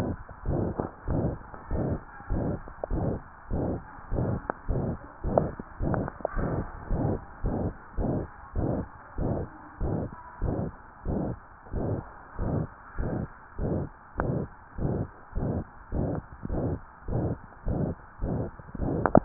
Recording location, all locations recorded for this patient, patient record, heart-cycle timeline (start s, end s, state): tricuspid valve (TV)
aortic valve (AV)+pulmonary valve (PV)+tricuspid valve (TV)+mitral valve (MV)
#Age: Adolescent
#Sex: Male
#Height: 153.0 cm
#Weight: 53.9 kg
#Pregnancy status: False
#Murmur: Present
#Murmur locations: aortic valve (AV)+mitral valve (MV)+pulmonary valve (PV)+tricuspid valve (TV)
#Most audible location: tricuspid valve (TV)
#Systolic murmur timing: Holosystolic
#Systolic murmur shape: Plateau
#Systolic murmur grading: III/VI or higher
#Systolic murmur pitch: High
#Systolic murmur quality: Harsh
#Diastolic murmur timing: nan
#Diastolic murmur shape: nan
#Diastolic murmur grading: nan
#Diastolic murmur pitch: nan
#Diastolic murmur quality: nan
#Outcome: Abnormal
#Campaign: 2015 screening campaign
0.00	0.44	unannotated
0.44	0.55	S1
0.55	0.62	systole
0.62	0.74	S2
0.74	1.06	diastole
1.06	1.22	S1
1.22	1.26	systole
1.26	1.38	S2
1.38	1.70	diastole
1.70	1.84	S1
1.84	1.88	systole
1.88	2.00	S2
2.00	2.30	diastole
2.30	2.42	S1
2.42	2.46	systole
2.46	2.58	S2
2.58	2.90	diastole
2.90	3.04	S1
3.04	3.09	systole
3.09	3.20	S2
3.20	3.50	diastole
3.50	3.62	S1
3.62	3.68	systole
3.68	3.80	S2
3.80	4.12	diastole
4.12	4.23	S1
4.23	4.30	systole
4.30	4.40	S2
4.40	4.68	diastole
4.68	4.82	S1
4.82	4.86	systole
4.86	4.98	S2
4.98	5.23	diastole
5.23	5.34	S1
5.34	5.48	systole
5.48	5.57	S2
5.57	5.78	diastole
5.78	5.90	S1
5.90	6.02	systole
6.02	6.12	S2
6.12	6.35	diastole
6.35	6.50	S1
6.50	6.54	systole
6.54	6.64	S2
6.64	6.90	diastole
6.90	7.02	S1
7.02	7.06	systole
7.06	7.20	S2
7.20	7.42	diastole
7.42	7.54	S1
7.54	7.60	systole
7.60	7.74	S2
7.74	7.95	diastole
7.95	8.05	S1
8.05	8.18	systole
8.18	8.32	S2
8.32	8.54	diastole
8.54	8.65	S1
8.65	8.74	systole
8.74	8.86	S2
8.86	9.15	diastole
9.15	9.25	S1
9.25	9.40	systole
9.40	9.50	S2
9.50	9.78	diastole
9.78	9.90	S1
9.90	9.98	systole
9.98	10.10	S2
10.10	10.39	diastole
10.39	10.53	S1
10.53	10.64	systole
10.64	10.72	S2
10.72	11.04	diastole
11.04	11.15	S1
11.15	11.28	systole
11.28	11.40	S2
11.40	11.72	diastole
11.72	11.83	S1
11.83	11.95	systole
11.95	12.04	S2
12.04	12.37	diastole
12.37	12.46	S1
12.46	12.57	systole
12.57	12.68	S2
12.68	12.96	diastole
12.96	13.08	S1
13.08	13.20	systole
13.20	13.30	S2
13.30	13.56	diastole
13.56	13.68	S1
13.68	13.79	systole
13.79	13.88	S2
13.88	14.15	diastole
14.15	14.30	S1
14.30	14.34	systole
14.34	14.48	S2
14.48	14.78	diastole
14.78	14.90	S1
14.90	14.94	systole
14.94	15.06	S2
15.06	15.34	diastole
15.34	15.50	S1
15.50	15.54	systole
15.54	15.64	S2
15.64	15.90	diastole
15.90	16.02	S1
16.02	16.14	systole
16.14	16.26	S2
16.26	16.48	diastole
16.48	16.64	S1
16.64	16.70	systole
16.70	16.80	S2
16.80	17.08	diastole
17.08	17.24	S1
17.24	17.30	systole
17.30	17.40	S2
17.40	17.65	diastole
17.65	17.77	S1
17.77	17.88	systole
17.88	17.98	S2
17.98	18.19	diastole
18.19	18.30	S1
18.30	18.43	systole
18.43	18.56	S2
18.56	18.79	diastole
18.79	19.25	unannotated